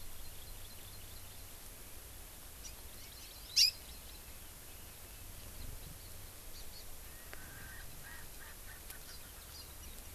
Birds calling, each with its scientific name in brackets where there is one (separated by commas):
Hawaii Amakihi (Chlorodrepanis virens), Erckel's Francolin (Pternistis erckelii)